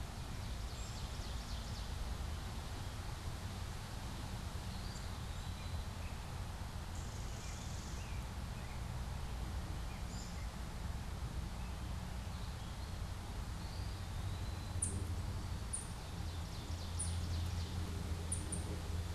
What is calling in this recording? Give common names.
Ovenbird, Eastern Wood-Pewee, American Robin, Common Yellowthroat, Warbling Vireo